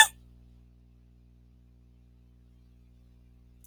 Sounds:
Sneeze